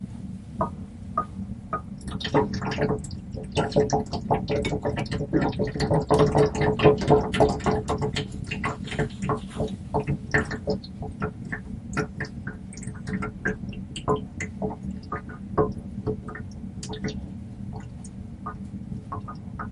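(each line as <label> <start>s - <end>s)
Water drips repeatedly from a tap. 0.5s - 2.0s
Water loudly dripping from a tap. 0.5s - 2.0s
Loud water flows from the tap, repeatedly knocking against it. 2.1s - 19.7s
Water suddenly flows from the tap and then slowly stops. 2.1s - 19.7s
Water is tapping irregularly on the tap. 2.1s - 19.7s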